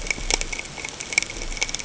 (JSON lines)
{"label": "ambient", "recorder": "HydroMoth"}